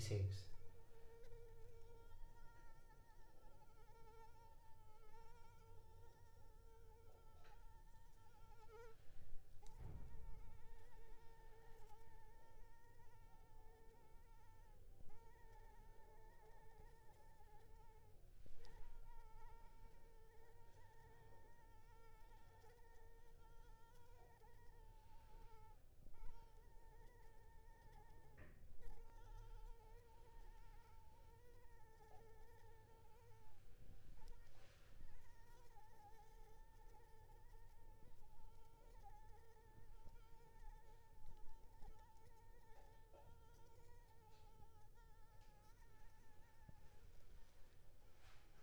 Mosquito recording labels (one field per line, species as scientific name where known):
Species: Anopheles arabiensis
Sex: female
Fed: unfed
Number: one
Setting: cup